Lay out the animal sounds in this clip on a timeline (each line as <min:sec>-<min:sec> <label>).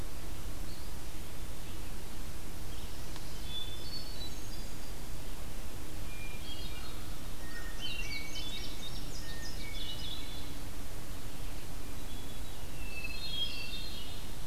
0:03.2-0:05.1 Hermit Thrush (Catharus guttatus)
0:06.0-0:07.4 Hermit Thrush (Catharus guttatus)
0:07.7-0:10.3 Indigo Bunting (Passerina cyanea)
0:07.8-0:08.9 Hermit Thrush (Catharus guttatus)
0:09.4-0:10.7 Hermit Thrush (Catharus guttatus)
0:12.3-0:14.5 Hermit Thrush (Catharus guttatus)